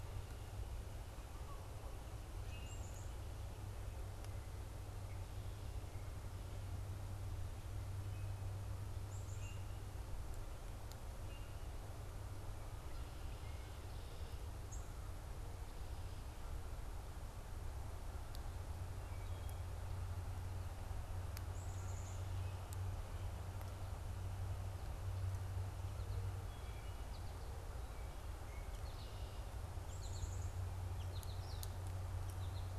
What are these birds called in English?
Common Grackle, Black-capped Chickadee, unidentified bird, Wood Thrush, American Goldfinch